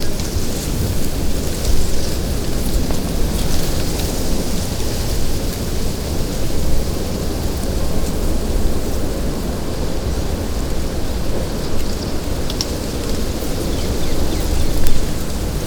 Is the sun shining?
no